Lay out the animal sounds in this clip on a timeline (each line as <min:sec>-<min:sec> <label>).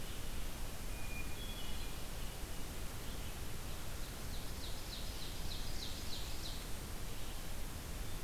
0:00.0-0:08.2 Red-eyed Vireo (Vireo olivaceus)
0:00.6-0:02.4 Hermit Thrush (Catharus guttatus)
0:04.0-0:06.8 Ovenbird (Seiurus aurocapilla)